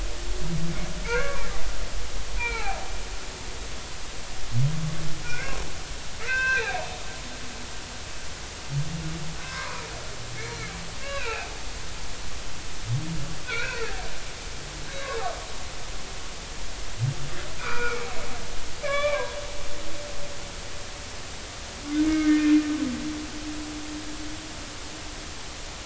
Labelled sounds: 1.1	1.5	humpback whale, 0.86 to 2.3 kHz
2.1	2.9	humpback whale, 0.80 to 2.5 kHz
5.2	5.6	humpback whale, 1.4 to 2.5 kHz
6.2	6.8	humpback whale, 0.93 to 4.2 kHz
9.4	9.9	humpback whale, 0.93 to 2.3 kHz
10.4	11.5	humpback whale, 0.80 to 4.3 kHz
13.4	14.0	humpback whale, 1.3 to 2.7 kHz
17.6	18.1	humpback whale, 0.93 to 2.5 kHz
18.8	19.4	humpback whale, 0.93 to 3.6 kHz
21.9	22.5	humpback whale, 1.2 to 2.2 kHz

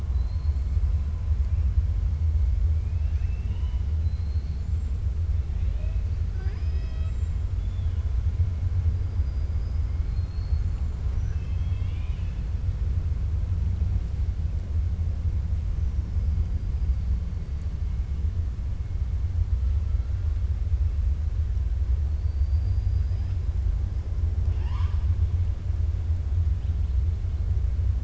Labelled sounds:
0.0	0.6	killer whale, 3.9 to 4.4 kHz
2.8	5.0	killer whale, 0.98 to 7.6 kHz
6.9	7.4	killer whale, 7.2 to 7.6 kHz
10.5	12.4	killer whale, 1.1 to 7.3 kHz
22.1	23.4	killer whale, 4.0 to 5.3 kHz
24.4	25.1	killer whale, 0.66 to 6.8 kHz

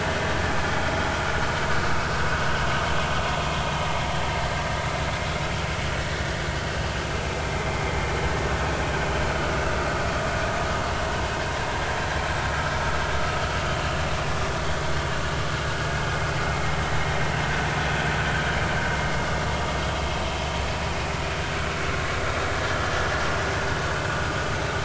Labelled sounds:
7.3	7.5	vessel noise, 2.3 to 2.5 kHz
9.3	9.6	vessel noise, 1.4 to 1.5 kHz

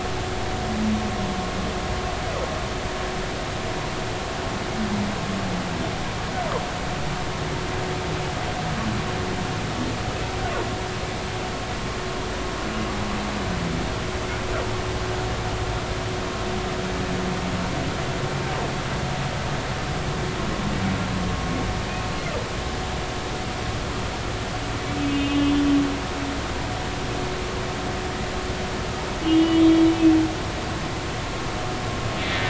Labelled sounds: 25.0	25.5	humpback whale, 2.5 to 3.2 kHz
29.2	29.8	humpback whale, 2.8 to 3.4 kHz

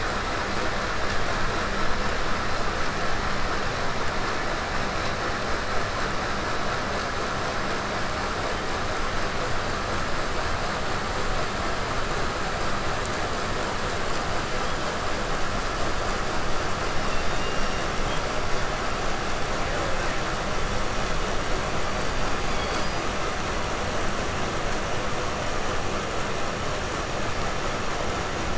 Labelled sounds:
16.9	18.3	killer whale, southern resident, 2.3 to 7.2 kHz
21.8	23.3	killer whale, 1.4 to 6.6 kHz

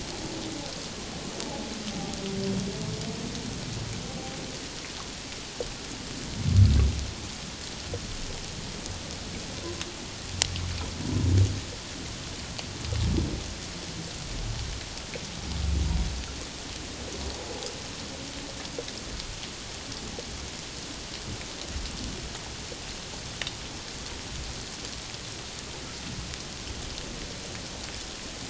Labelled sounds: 11.0	11.3	humpback whale, 0.91 to 1.0 kHz

